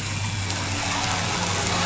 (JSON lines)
{"label": "anthrophony, boat engine", "recorder": "SoundTrap 500"}